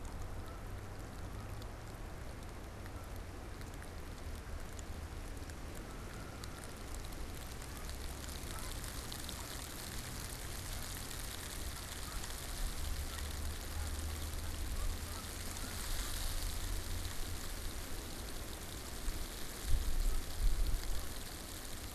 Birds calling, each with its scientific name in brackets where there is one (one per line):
Canada Goose (Branta canadensis)